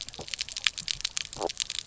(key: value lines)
label: biophony, stridulation
recorder: SoundTrap 300